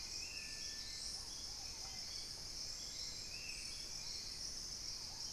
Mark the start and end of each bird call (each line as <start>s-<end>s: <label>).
0.0s-3.9s: Spot-winged Antshrike (Pygiptila stellaris)
0.0s-5.3s: Hauxwell's Thrush (Turdus hauxwelli)
0.0s-5.3s: Ruddy Pigeon (Patagioenas subvinacea)
3.7s-5.3s: Purple-throated Fruitcrow (Querula purpurata)